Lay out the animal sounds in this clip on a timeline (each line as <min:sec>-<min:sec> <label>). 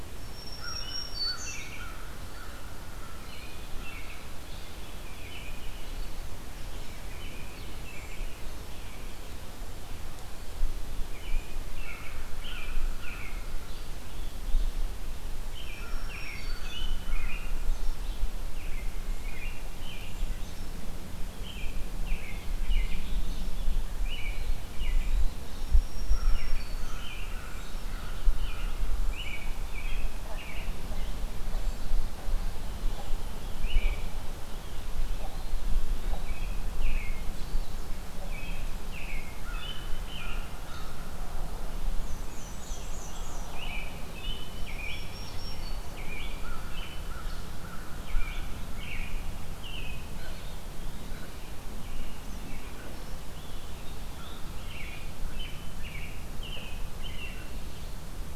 0:00.1-0:01.7 Black-throated Green Warbler (Setophaga virens)
0:00.5-0:03.4 American Crow (Corvus brachyrhynchos)
0:01.4-0:01.9 American Robin (Turdus migratorius)
0:03.2-0:06.3 American Robin (Turdus migratorius)
0:07.0-0:09.2 American Robin (Turdus migratorius)
0:11.0-0:13.5 American Robin (Turdus migratorius)
0:11.8-0:13.4 American Crow (Corvus brachyrhynchos)
0:15.4-0:20.6 American Robin (Turdus migratorius)
0:15.6-0:16.9 Black-throated Green Warbler (Setophaga virens)
0:15.7-0:17.6 American Crow (Corvus brachyrhynchos)
0:21.3-0:23.6 American Robin (Turdus migratorius)
0:24.0-0:25.2 American Robin (Turdus migratorius)
0:24.3-0:25.5 Eastern Wood-Pewee (Contopus virens)
0:25.3-0:27.1 Black-throated Green Warbler (Setophaga virens)
0:26.0-0:28.9 American Crow (Corvus brachyrhynchos)
0:26.2-0:27.6 American Robin (Turdus migratorius)
0:28.3-0:31.2 American Robin (Turdus migratorius)
0:33.5-0:34.1 American Robin (Turdus migratorius)
0:35.3-0:36.5 Eastern Wood-Pewee (Contopus virens)
0:36.1-0:37.4 American Robin (Turdus migratorius)
0:38.2-0:40.9 American Robin (Turdus migratorius)
0:39.2-0:41.0 American Crow (Corvus brachyrhynchos)
0:42.0-0:43.4 Black-and-white Warbler (Mniotilta varia)
0:42.1-0:43.7 Scarlet Tanager (Piranga olivacea)
0:43.4-0:45.2 American Robin (Turdus migratorius)
0:44.5-0:46.2 Black-throated Green Warbler (Setophaga virens)
0:45.7-0:47.5 American Robin (Turdus migratorius)
0:46.3-0:48.6 American Crow (Corvus brachyrhynchos)
0:47.8-0:50.1 American Robin (Turdus migratorius)
0:50.2-0:51.3 Eastern Wood-Pewee (Contopus virens)
0:51.2-0:52.8 American Robin (Turdus migratorius)
0:52.9-0:54.8 Scarlet Tanager (Piranga olivacea)
0:54.6-0:58.0 American Robin (Turdus migratorius)